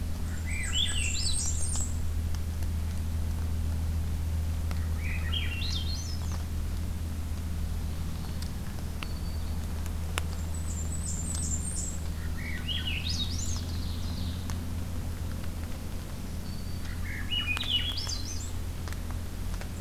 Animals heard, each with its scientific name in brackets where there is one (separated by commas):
Blackburnian Warbler (Setophaga fusca), Black-throated Green Warbler (Setophaga virens), Swainson's Thrush (Catharus ustulatus), Ovenbird (Seiurus aurocapilla)